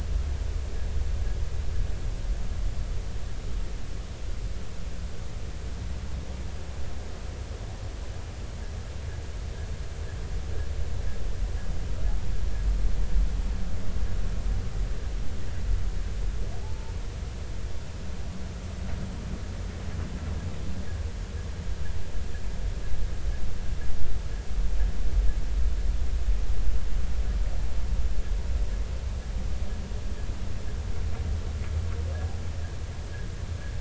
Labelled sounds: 16.6	16.9	humpback whale, 0.80 to 0.99 kHz

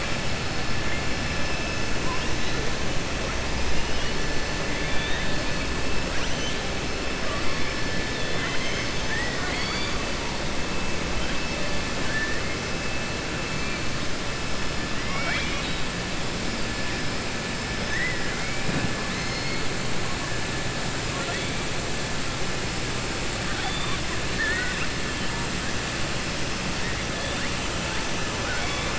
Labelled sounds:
4.7	5.3	killer whale, southern resident, 1.6 to 3.8 kHz
6.1	6.6	killer whale, southern resident, 1.6 to 4.0 kHz
9.0	10.0	killer whale, southern resident, 0.75 to 4.8 kHz
15.0	15.8	killer whale, southern resident, 0.72 to 5.6 kHz
24.3	24.9	killer whale, southern resident, 1.4 to 2.8 kHz

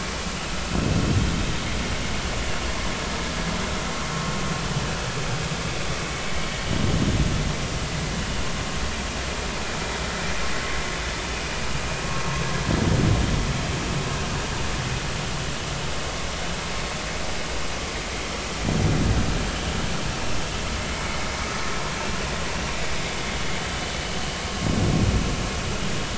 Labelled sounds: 21.0	21.3	vessel noise, 2.0 to 2.3 kHz

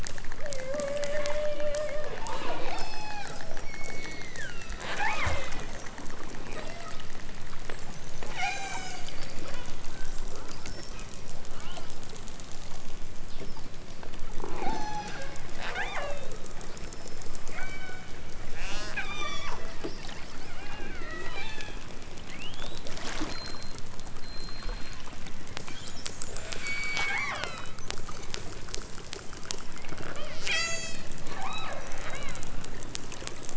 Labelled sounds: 0.3	5.5	killer whale, southern Alaska resident, 0.23 to 8.0 kHz
6.5	7.1	killer whale, southern Alaska resident, 0.41 to 5.8 kHz
8.2	9.9	killer whale, southern Alaska resident, 0.37 to 8.0 kHz
14.5	15.3	killer whale, southern Alaska resident, 0.41 to 8.0 kHz
15.6	16.3	killer whale, southern Alaska resident, 0.37 to 5.8 kHz
17.5	19.8	killer whale, southern Alaska resident, 0.41 to 8.0 kHz
20.4	21.9	killer whale, southern Alaska resident, 0.74 to 8.0 kHz
26.5	27.8	killer whale, southern Alaska resident, 0.28 to 7.1 kHz
29.9	31.1	killer whale, southern Alaska resident, 0.28 to 8.0 kHz
31.4	32.5	killer whale, southern Alaska resident, 0.32 to 4.2 kHz

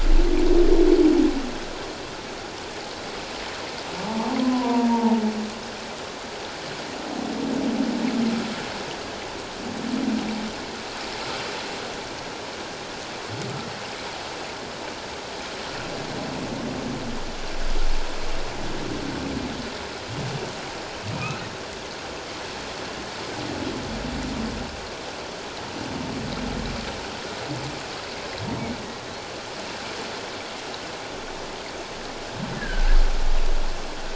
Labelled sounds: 4.1	5.2	humpback whale, 0.78 to 1.1 kHz
21.1	21.4	humpback whale, 2.4 to 2.7 kHz
32.6	33.0	humpback whale, 1.5 to 1.8 kHz

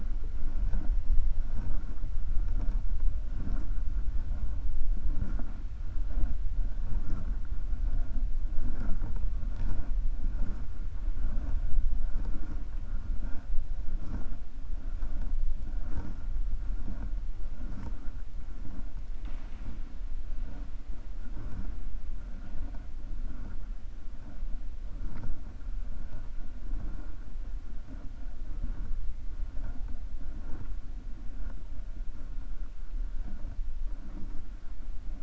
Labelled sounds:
19.1	19.8	killer whale, 0.81 to 4.2 kHz

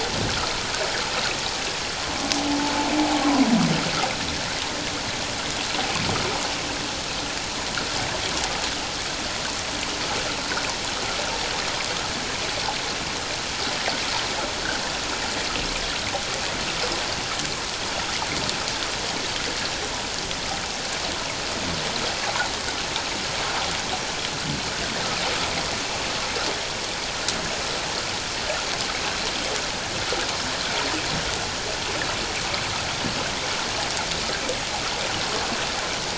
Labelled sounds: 2.5	2.7	humpback whale, 0.81 to 0.94 kHz
3.1	3.5	humpback whale, 0.94 to 1.1 kHz

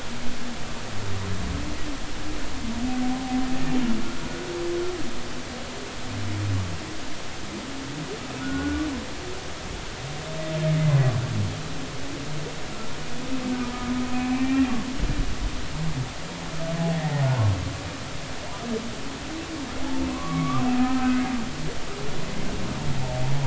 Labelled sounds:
8.4	8.8	humpback whale, 1.4 to 1.6 kHz
12.7	13.0	humpback whale, 1.3 to 1.4 kHz
14.3	14.7	humpback whale, 1.8 to 2.4 kHz
20.1	21.2	humpback whale, 0.99 to 2.3 kHz

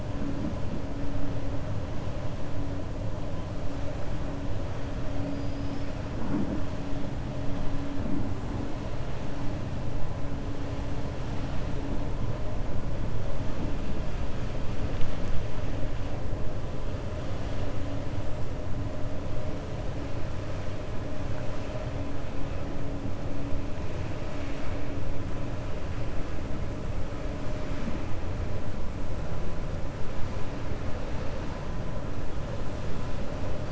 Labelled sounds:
5.2	5.9	killer whale, 4.4 to 5.4 kHz

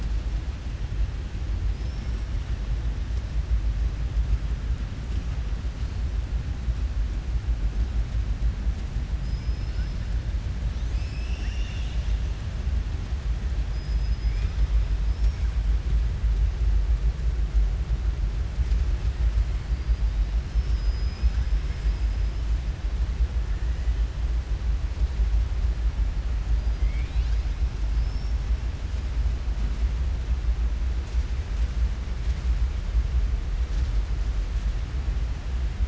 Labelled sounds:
9.1	9.9	killer whale, southern resident, 4.3 to 5.2 kHz
13.6	14.5	killer whale, southern resident, 1.2 to 5.3 kHz
20.4	21.5	killer whale, southern resident, 4.3 to 6.2 kHz
26.7	27.5	killer whale, southern resident, 2.1 to 5.4 kHz
27.9	28.4	killer whale, southern resident, 4.6 to 5.5 kHz

